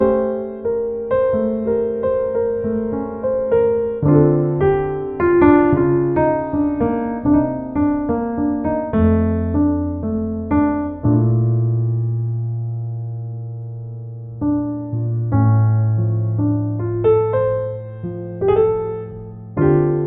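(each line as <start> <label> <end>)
0.1 A piano plays a melody. 20.1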